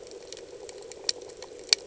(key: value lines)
label: anthrophony, boat engine
recorder: HydroMoth